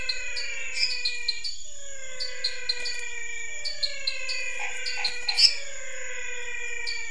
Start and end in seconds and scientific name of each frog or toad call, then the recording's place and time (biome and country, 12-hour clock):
0.0	7.1	Dendropsophus nanus
0.0	7.1	Physalaemus albonotatus
0.7	1.0	Dendropsophus minutus
4.5	5.4	Boana raniceps
5.4	5.6	Dendropsophus minutus
Cerrado, Brazil, 7:45pm